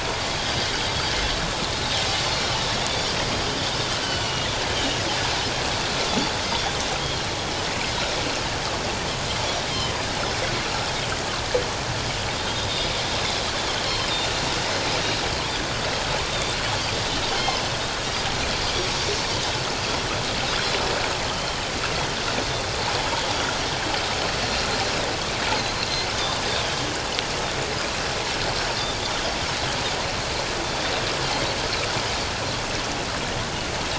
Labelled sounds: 2.8	3.1	Pacific white-sided dolphin, 3.4 to 3.6 kHz
4.0	4.5	Pacific white-sided dolphin, 1.4 to 3.1 kHz
4.7	5.0	Pacific white-sided dolphin, 2.8 to 3.2 kHz
9.4	9.9	Pacific white-sided dolphin, 2.9 to 5.8 kHz
13.2	13.5	Pacific white-sided dolphin, 4.0 to 4.2 kHz
17.0	17.3	Pacific white-sided dolphin, 3.7 to 3.8 kHz
21.3	21.6	Pacific white-sided dolphin, 3.0 to 3.2 kHz
26.1	26.4	Pacific white-sided dolphin, 3.5 to 3.8 kHz

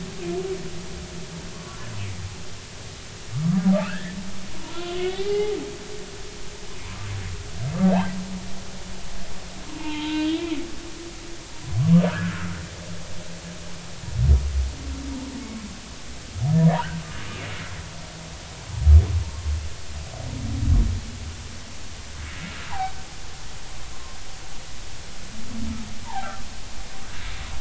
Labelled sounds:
1.5	1.8	humpback whale, 0.99 to 1.2 kHz
3.7	5.6	humpback whale, 0.80 to 3.5 kHz
9.8	10.6	humpback whale, 0.83 to 2.9 kHz
12.1	12.5	humpback whale, 1.2 to 1.8 kHz
22.7	22.9	humpback whale, 0.80 to 1.1 kHz
23.9	24.2	humpback whale, 1.0 to 1.1 kHz
26.1	26.4	humpback whale, 1.5 to 1.8 kHz
27.0	27.4	humpback whale, 0.80 to 1.1 kHz

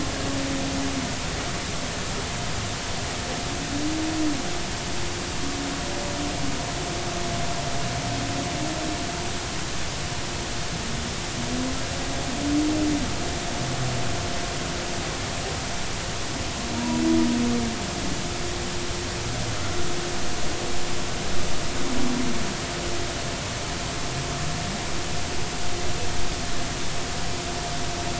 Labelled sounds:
16.7	17.0	humpback whale, 0.90 to 1.0 kHz

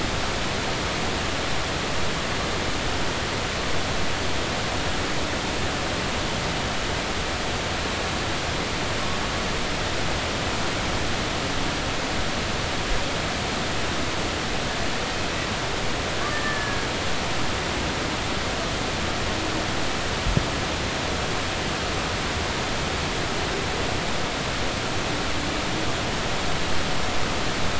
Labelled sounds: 16.3	16.9	killer whale, Bigg's (transient), 1.6 to 1.9 kHz

